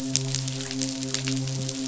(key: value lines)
label: biophony, midshipman
recorder: SoundTrap 500